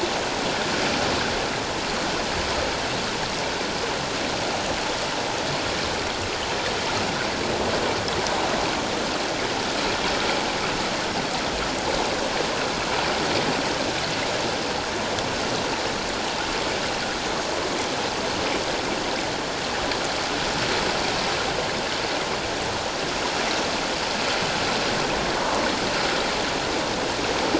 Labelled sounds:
25.4	25.6	water noise, 1.0 to 1.2 kHz

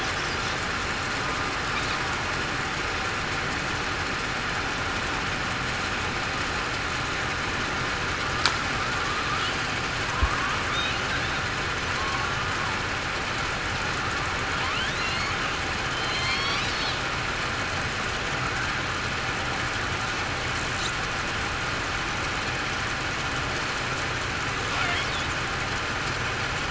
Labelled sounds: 12.0	12.4	killer whale, southern resident, 1.0 to 1.2 kHz
16.0	16.6	killer whale, southern resident, 2.1 to 4.7 kHz

